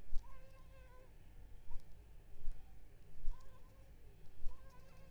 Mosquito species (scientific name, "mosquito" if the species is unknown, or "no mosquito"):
Culex pipiens complex